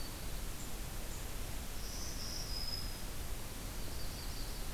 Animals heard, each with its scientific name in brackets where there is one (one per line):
Yellow-rumped Warbler (Setophaga coronata)
Black-throated Green Warbler (Setophaga virens)